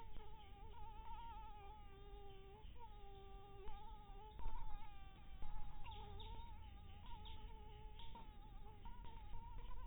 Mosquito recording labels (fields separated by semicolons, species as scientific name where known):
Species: Anopheles harrisoni; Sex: female; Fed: blood-fed; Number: one; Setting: cup